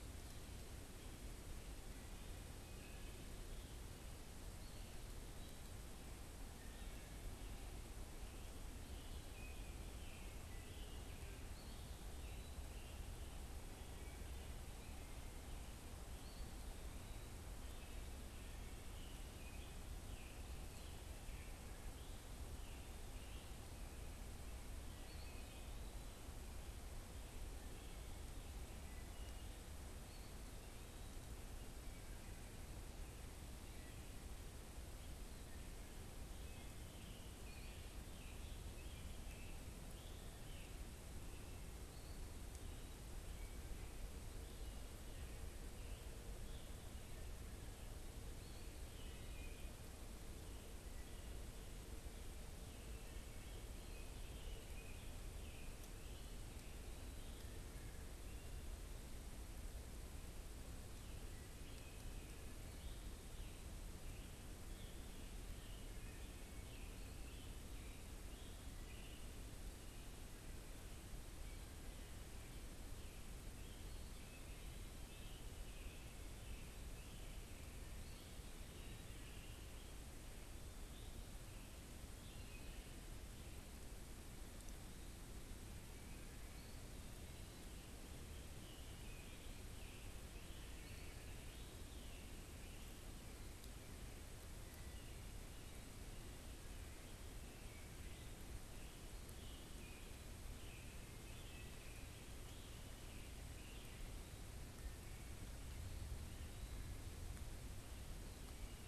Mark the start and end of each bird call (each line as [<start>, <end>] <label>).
[2.50, 16.50] unidentified bird
[2.60, 3.30] Wood Thrush (Hylocichla mustelina)
[4.50, 5.80] Eastern Wood-Pewee (Contopus virens)
[6.30, 7.40] Wood Thrush (Hylocichla mustelina)
[11.40, 12.70] Eastern Wood-Pewee (Contopus virens)
[13.90, 15.30] Wood Thrush (Hylocichla mustelina)
[16.20, 17.30] Eastern Wood-Pewee (Contopus virens)
[17.50, 30.10] unidentified bird
[17.70, 18.80] Wood Thrush (Hylocichla mustelina)
[20.40, 20.90] Eastern Wood-Pewee (Contopus virens)
[24.90, 26.20] Eastern Wood-Pewee (Contopus virens)
[28.70, 29.50] Wood Thrush (Hylocichla mustelina)
[29.90, 31.20] Eastern Wood-Pewee (Contopus virens)
[31.30, 35.70] Wood Thrush (Hylocichla mustelina)
[35.90, 41.70] Scarlet Tanager (Piranga olivacea)
[48.90, 49.80] unidentified bird
[52.60, 53.70] Wood Thrush (Hylocichla mustelina)
[53.20, 56.60] Scarlet Tanager (Piranga olivacea)
[61.30, 79.90] Scarlet Tanager (Piranga olivacea)
[88.30, 93.20] Scarlet Tanager (Piranga olivacea)
[97.90, 104.10] Scarlet Tanager (Piranga olivacea)